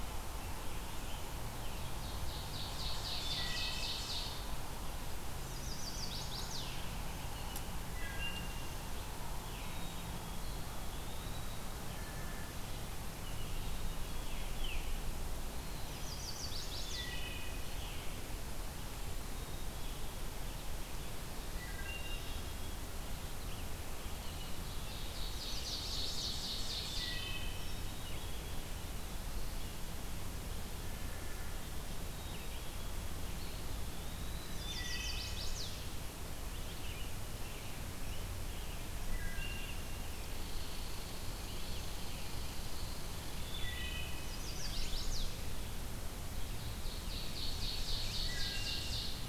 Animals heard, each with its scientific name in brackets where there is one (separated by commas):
Wood Thrush (Hylocichla mustelina), Chestnut-sided Warbler (Setophaga pensylvanica), Black-capped Chickadee (Poecile atricapillus), American Robin (Turdus migratorius), Veery (Catharus fuscescens), Ovenbird (Seiurus aurocapilla), Eastern Wood-Pewee (Contopus virens), Red Squirrel (Tamiasciurus hudsonicus)